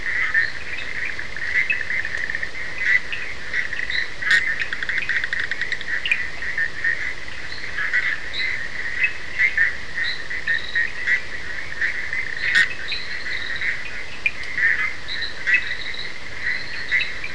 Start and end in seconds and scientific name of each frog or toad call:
4.4	5.9	Boana bischoffi
14.2	17.3	Sphaenorhynchus surdus